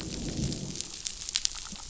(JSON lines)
{"label": "biophony, growl", "recorder": "SoundTrap 500"}